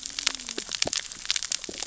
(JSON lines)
{"label": "biophony, cascading saw", "recorder": "SoundTrap 600 or HydroMoth"}